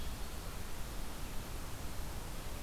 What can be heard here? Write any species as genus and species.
Vireo olivaceus